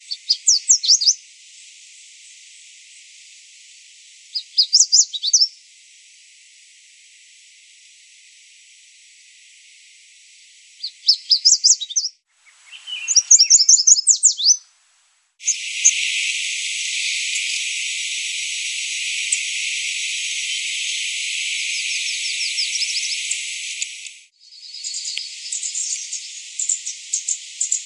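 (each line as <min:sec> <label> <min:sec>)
0:00.0 A bird chirps melodically in a repeating pattern. 0:01.8
0:04.0 A bird chirps melodically in a repeating pattern. 0:05.8
0:10.8 A bird chirps melodically in a repeating pattern. 0:15.3
0:15.4 Continuous ambient jungle sounds. 0:24.3
0:24.5 Continuous ambient jungle sounds with a distant bird singing intermittently. 0:27.9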